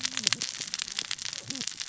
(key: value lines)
label: biophony, cascading saw
recorder: SoundTrap 600 or HydroMoth